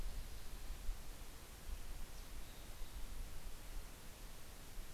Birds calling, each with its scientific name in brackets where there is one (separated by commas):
Mountain Chickadee (Poecile gambeli)